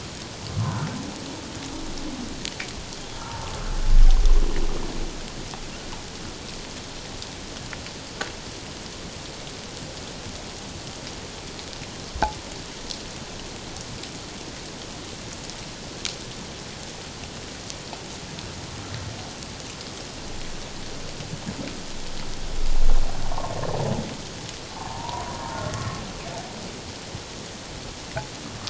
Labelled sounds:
3.2	3.5	humpback whale, 0.88 to 0.97 kHz
23.2	23.5	humpback whale, 0.84 to 1.2 kHz
24.8	25.3	humpback whale, 0.88 to 1.1 kHz

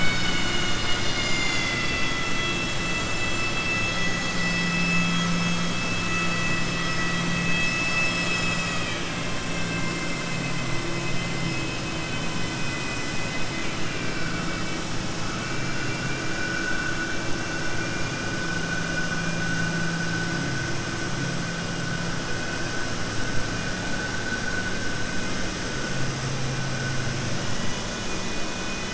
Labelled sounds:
9.6	10.2	vessel noise, 1.1 to 2.2 kHz
17.7	18.2	vessel noise, 1.6 to 2.9 kHz
27.9	28.9	vessel noise, 2.0 to 4.0 kHz

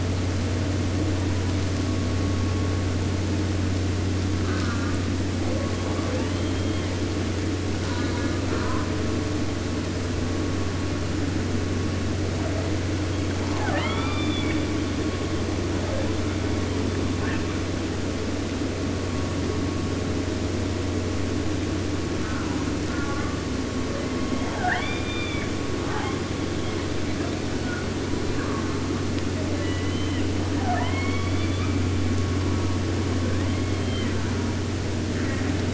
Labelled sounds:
4.4	5.1	killer whale, southern resident, J pod, call S04, 0.50 to 3.0 kHz
5.4	7.2	killer whale, southern resident, J pod, call S44, 0.39 to 5.9 kHz
7.7	9.0	killer whale, southern resident, J pod, call S04, 0.58 to 7.4 kHz
13.3	14.6	killer whale, southern resident, J pod, call S44, 0.50 to 5.3 kHz
15.6	16.2	killer whale, 0.30 to 2.1 kHz
17.1	17.7	killer whale, 0.49 to 4.2 kHz
22.2	23.4	killer whale, southern resident, J pod, call S04, 0.50 to 3.0 kHz
23.9	24.8	killer whale, 0.65 to 5.3 kHz
24.5	25.6	killer whale, southern resident, J pod, call S44, 0.50 to 5.5 kHz
25.8	26.2	killer whale, 0.44 to 4.3 kHz
26.6	27.9	killer whale, 0.49 to 4.8 kHz
28.3	29.0	killer whale, southern resident, J pod, call S04, 0.66 to 2.2 kHz
29.1	30.3	killer whale, southern resident, 0.50 to 6.1 kHz
30.5	31.9	killer whale, southern resident, J pod, call S44, 0.37 to 5.0 kHz
33.1	34.7	killer whale, southern resident, J pod, call S44 and call S04, 0.49 to 4.2 kHz
35.1	35.7	killer whale, southern resident, J pod, call S04, 0.74 to 3.6 kHz

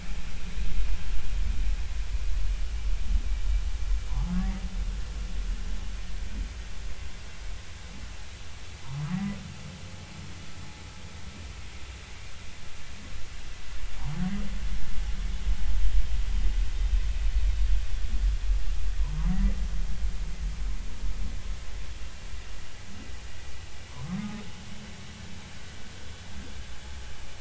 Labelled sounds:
4.1	4.3	humpback whale, 0.80 to 1.2 kHz
9.1	9.4	humpback whale, 1.8 to 2.1 kHz
23.9	24.4	humpback whale, 0.93 to 1.3 kHz

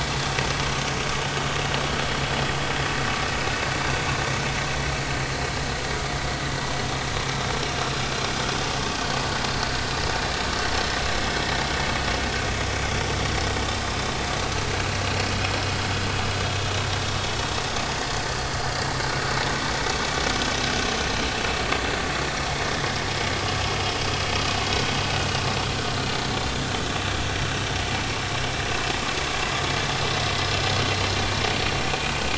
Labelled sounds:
25.9	26.2	vessel noise, 4.1 to 4.3 kHz

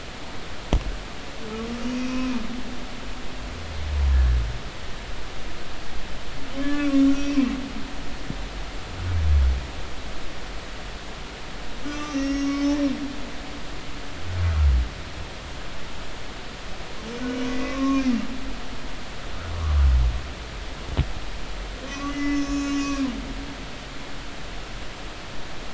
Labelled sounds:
1.9	2.4	humpback whale, 0.86 to 2.6 kHz
6.5	7.4	humpback whale, 1.0 to 5.8 kHz
11.8	12.8	humpback whale, 1.1 to 6.5 kHz
17.2	18.0	humpback whale, 1.0 to 2.6 kHz
21.9	23.0	humpback whale, 0.99 to 6.8 kHz

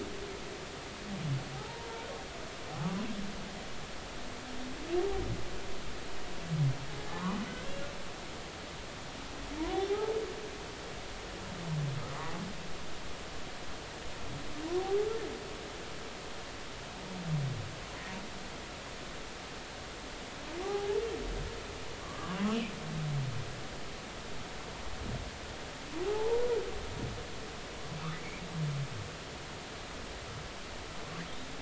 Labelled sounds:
1.5	1.9	humpback whale, 0.80 to 1.0 kHz
7.1	7.7	humpback whale, 0.80 to 1.7 kHz
9.9	10.2	humpback whale, 0.80 to 0.93 kHz
20.6	20.9	humpback whale, 0.80 to 0.86 kHz
22.0	22.4	humpback whale, 1.0 to 1.3 kHz
26.0	26.4	humpback whale, 0.80 to 1.0 kHz

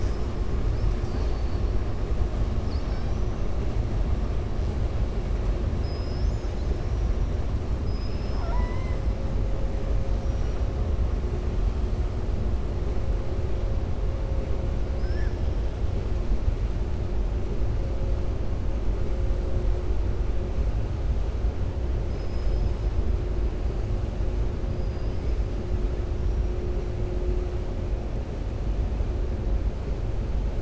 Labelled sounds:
0.9	1.6	killer whale, southern resident, 4.1 to 5.7 kHz
5.7	6.7	killer whale, southern resident, 4.0 to 7.0 kHz
7.8	9.0	killer whale, southern resident, 0.67 to 6.0 kHz
10.1	10.6	killer whale, southern resident, 5.5 to 5.8 kHz
14.9	15.4	killer whale, southern resident, 4.9 to 5.8 kHz
24.7	25.4	killer whale, southern resident, 4.8 to 5.3 kHz

